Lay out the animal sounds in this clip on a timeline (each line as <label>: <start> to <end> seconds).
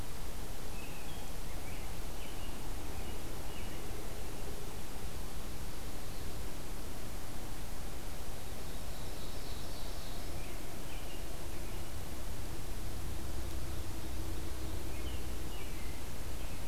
American Robin (Turdus migratorius): 0.7 to 4.0 seconds
Ovenbird (Seiurus aurocapilla): 8.2 to 10.4 seconds
American Robin (Turdus migratorius): 10.4 to 12.0 seconds
Ovenbird (Seiurus aurocapilla): 13.0 to 14.8 seconds
American Robin (Turdus migratorius): 14.8 to 16.7 seconds